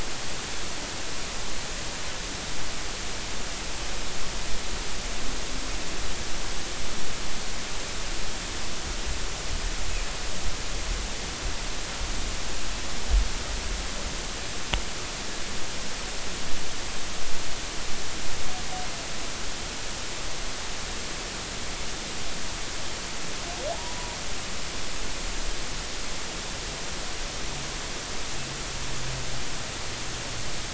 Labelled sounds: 23.7	24.2	humpback whale, 0.80 to 1.0 kHz

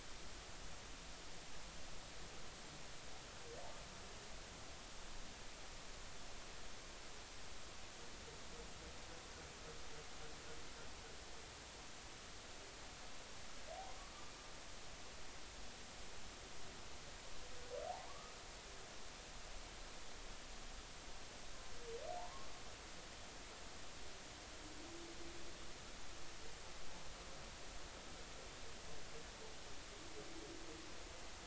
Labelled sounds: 17.9	18.3	humpback whale, 0.80 to 1.3 kHz
22.2	22.5	humpback whale, 0.83 to 1.2 kHz

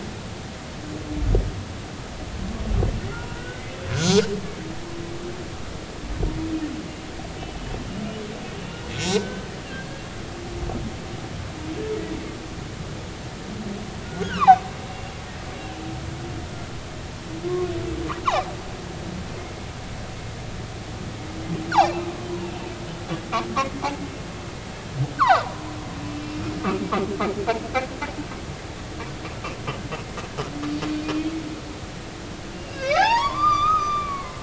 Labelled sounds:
0.5	0.8	humpback whale, 5.6 to 5.8 kHz
3.1	4.3	humpback whale, 0.90 to 6.2 kHz
9.0	10.0	humpback whale, 1.4 to 3.1 kHz
14.0	14.6	humpback whale, 0.80 to 4.4 kHz
21.7	22.1	humpback whale, 2.6 to 2.8 kHz
23.6	23.8	humpback whale, 2.0 to 2.2 kHz
25.2	26.4	humpback whale, 0.80 to 2.8 kHz
32.5	34.4	humpback whale, 0.80 to 6.9 kHz

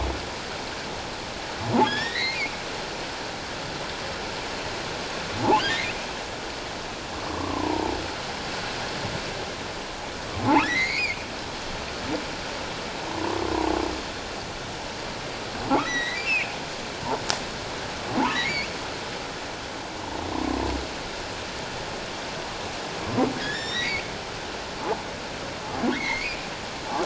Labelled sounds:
1.8	2.4	humpback whale, 1.6 to 5.6 kHz
5.6	5.9	humpback whale, 1.4 to 2.2 kHz
7.3	8.0	humpback whale, 0.78 to 1.2 kHz
10.6	11.2	humpback whale, 1.6 to 4.7 kHz
13.0	13.4	humpback whale, 0.91 to 1.2 kHz
15.8	16.5	humpback whale, 1.8 to 4.1 kHz
18.3	18.7	humpback whale, 1.7 to 2.9 kHz
20.3	20.6	humpback whale, 0.91 to 1.1 kHz
23.4	23.9	humpback whale, 1.6 to 5.9 kHz
25.9	26.4	humpback whale, 1.4 to 2.8 kHz

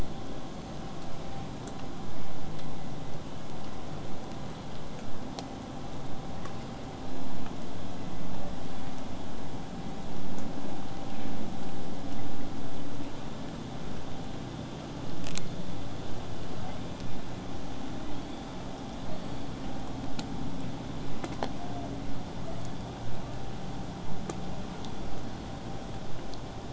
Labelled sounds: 8.5	9.1	killer whale, southern resident, 7.5 to 8.0 kHz
20.9	21.9	killer whale, southern resident, call S01, 0.58 to 4.4 kHz
22.4	23.0	killer whale, southern resident, J pod, call S44, 6.2 to 8.0 kHz

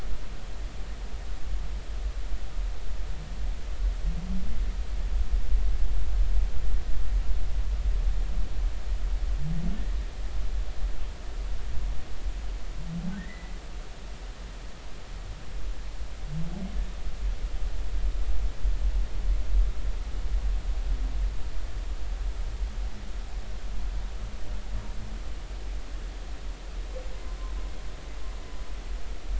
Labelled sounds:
13.2	13.5	humpback whale, 1.8 to 2.1 kHz

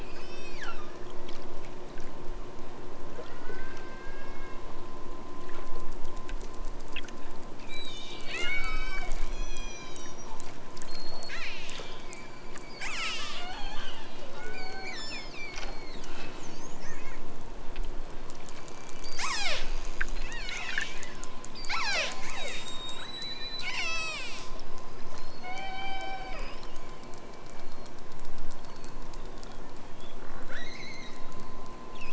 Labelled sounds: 0.0	1.0	killer whale, southern Alaska resident, 0.97 to 8.0 kHz
3.3	4.8	killer whale, southern Alaska resident, 1.2 to 5.9 kHz
7.5	10.4	killer whale, southern Alaska resident, 1.0 to 8.0 kHz
10.8	16.3	killer whale, southern Alaska resident, 0.46 to 8.0 kHz
18.5	19.7	killer whale, southern Alaska resident, 0.46 to 8.0 kHz
20.3	21.1	killer whale, southern Alaska resident, 0.97 to 8.0 kHz
21.5	22.7	killer whale, southern Alaska resident, 0.28 to 8.0 kHz
23.6	24.5	killer whale, southern Alaska resident, 0.51 to 8.0 kHz
25.5	26.5	killer whale, southern Alaska resident, 0.51 to 8.0 kHz
30.4	31.2	killer whale, southern Alaska resident, 1.1 to 6.8 kHz

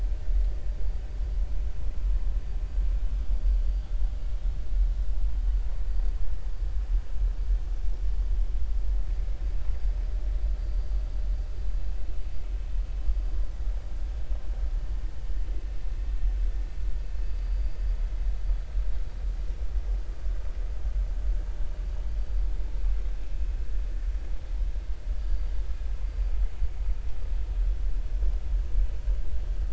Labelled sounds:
17.4	17.7	vessel noise, 4.6 to 4.9 kHz
25.2	25.5	vessel noise, 4.6 to 4.7 kHz

